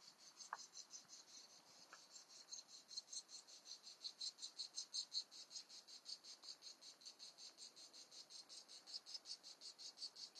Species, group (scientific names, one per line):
Cicada orni
Cicadidae